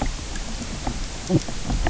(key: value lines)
label: biophony
recorder: SoundTrap 300